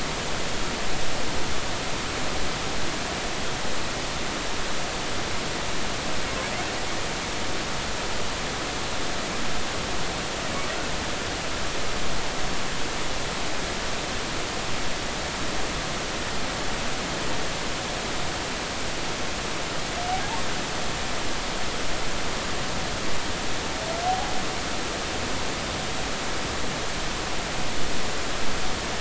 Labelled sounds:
24.1	24.3	humpback whale, 0.80 to 0.86 kHz

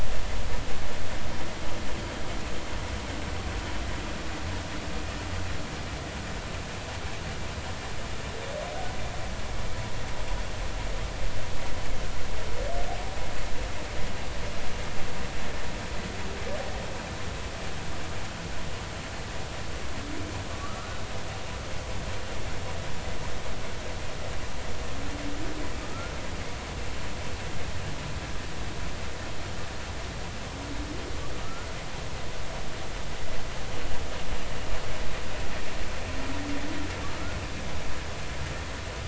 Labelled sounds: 20.5	21.0	humpback whale, 1.1 to 1.5 kHz
25.9	26.1	humpback whale, 1.2 to 1.5 kHz
31.4	31.7	humpback whale, 1.1 to 1.5 kHz

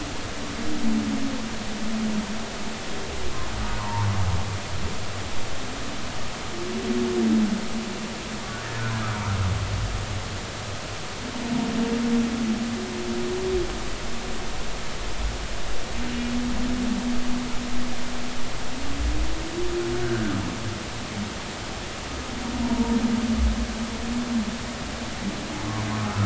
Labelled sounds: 3.8	4.1	humpback whale, 0.83 to 1.2 kHz
20.0	20.3	humpback whale, 1.4 to 1.7 kHz
22.6	23.0	humpback whale, 0.90 to 1.0 kHz

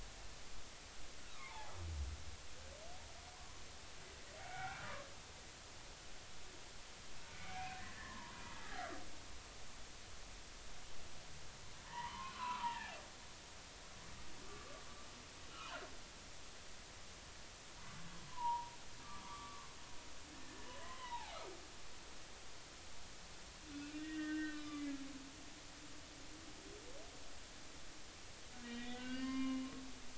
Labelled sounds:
1.2	1.7	humpback whale, 0.80 to 1.5 kHz
3.3	3.6	humpback whale, 0.96 to 1.2 kHz
4.5	5.1	humpback whale, 1.0 to 2.4 kHz
7.3	8.3	humpback whale, 0.90 to 2.6 kHz
11.8	13.0	humpback whale, 0.80 to 2.8 kHz
15.5	15.8	humpback whale, 2.7 to 3.1 kHz
18.3	18.7	humpback whale, 0.86 to 1.1 kHz
19.0	21.4	humpback whale, 0.80 to 2.1 kHz
23.7	25.0	humpback whale, 1.1 to 3.8 kHz
28.6	29.6	humpback whale, 0.99 to 4.8 kHz

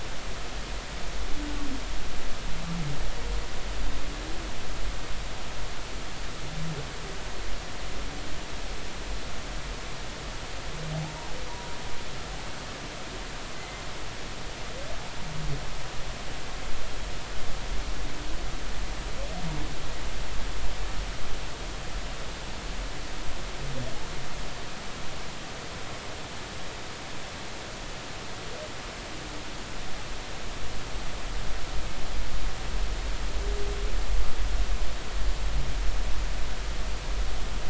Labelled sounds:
10.9	11.3	humpback whale, 0.80 to 1.1 kHz
13.5	13.8	humpback whale, 2.0 to 2.1 kHz

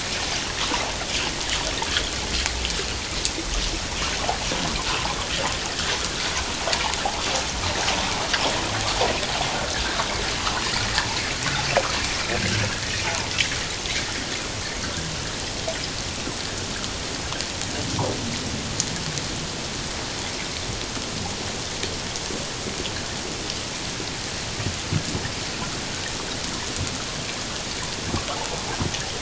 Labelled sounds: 5.7	6.0	water noise, 1.5 to 2.0 kHz

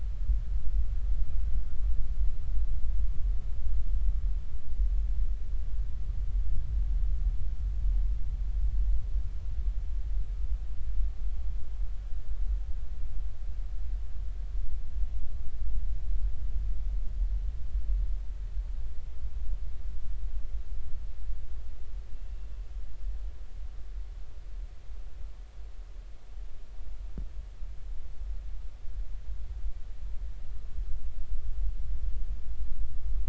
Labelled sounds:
22.1	22.5	killer whale, northern resident, 2.6 to 2.8 kHz

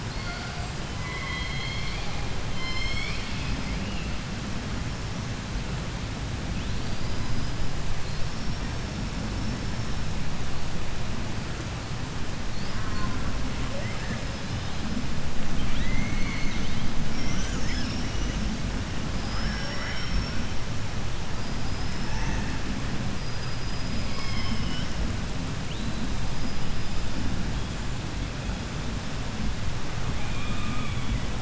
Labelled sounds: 0.0	0.8	killer whale, 0.24 to 8.0 kHz
0.8	3.8	killer whale, southern resident, J pod, call S01, 0.10 to 8.0 kHz
6.5	10.7	killer whale, 0.72 to 5.6 kHz
12.5	13.5	killer whale, southern resident, J pod, call S04, 0.53 to 5.3 kHz
13.6	18.6	killer whale, 0.38 to 7.6 kHz
19.2	20.7	killer whale, 0.27 to 3.7 kHz
21.3	22.8	killer whale, 0.57 to 7.1 kHz
23.2	25.3	killer whale, 0.63 to 8.0 kHz
25.6	28.2	killer whale, 2.0 to 7.8 kHz
30.0	31.3	killer whale, 0.39 to 3.9 kHz

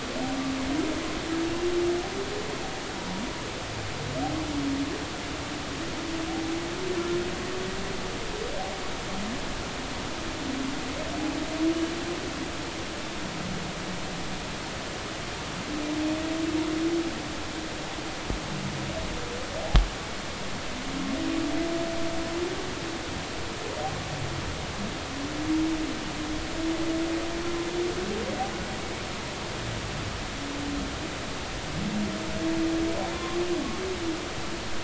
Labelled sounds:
3.0	3.2	humpback whale, 0.90 to 0.99 kHz
33.1	33.4	humpback whale, 0.99 to 1.2 kHz

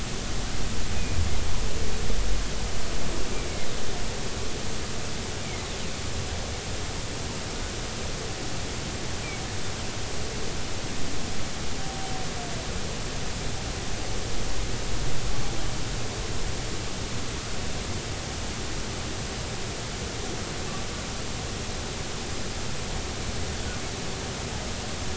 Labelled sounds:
0.9	1.2	humpback whale, 2.1 to 2.6 kHz

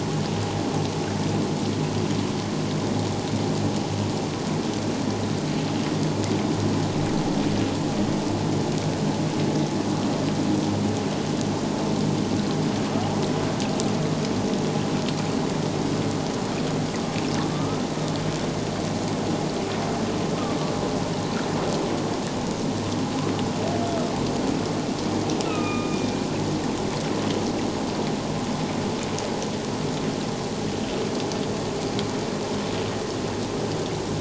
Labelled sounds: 17.5	17.8	humpback whale, 1.1 to 1.3 kHz
25.4	26.0	humpback whale, 1.2 to 2.8 kHz

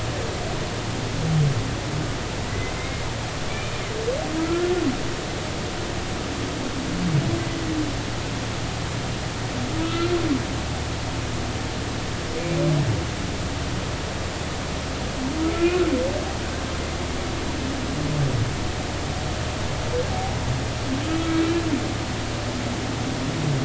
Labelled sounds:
2.5	3.8	humpback whale, 2.0 to 2.5 kHz
4.4	4.7	humpback whale, 1.2 to 1.5 kHz
9.8	10.1	humpback whale, 1.3 to 1.4 kHz
15.5	15.9	humpback whale, 1.3 to 1.5 kHz

